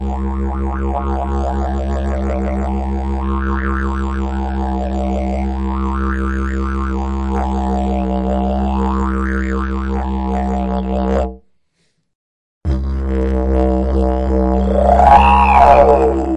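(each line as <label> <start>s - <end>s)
A person is playing a didgeridoo rhythmically in a steady pattern. 0.0s - 11.4s
A muffled sound fades away in the distance. 11.7s - 12.1s
A person plays the didgeridoo rhythmically, gradually increasing in intensity. 12.6s - 16.4s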